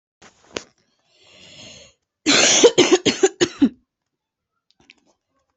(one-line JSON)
{"expert_labels": [{"quality": "good", "cough_type": "wet", "dyspnea": false, "wheezing": false, "stridor": false, "choking": false, "congestion": true, "nothing": false, "diagnosis": "lower respiratory tract infection", "severity": "mild"}], "age": 32, "gender": "female", "respiratory_condition": true, "fever_muscle_pain": false, "status": "symptomatic"}